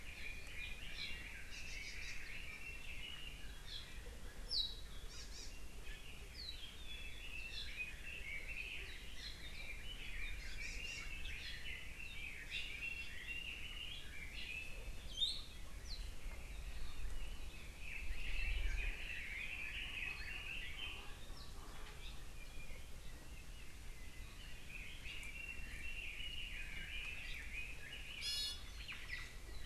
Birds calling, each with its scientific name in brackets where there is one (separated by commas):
Iiwi (Drepanis coccinea), Red-billed Leiothrix (Leiothrix lutea), Omao (Myadestes obscurus), Hawaii Amakihi (Chlorodrepanis virens)